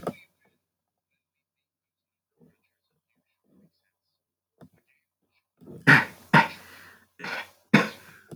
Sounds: Cough